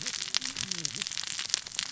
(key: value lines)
label: biophony, cascading saw
recorder: SoundTrap 600 or HydroMoth